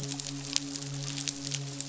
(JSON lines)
{"label": "biophony, midshipman", "recorder": "SoundTrap 500"}